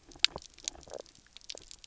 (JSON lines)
{"label": "biophony, knock croak", "recorder": "SoundTrap 300"}